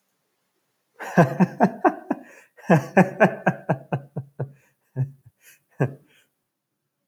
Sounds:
Laughter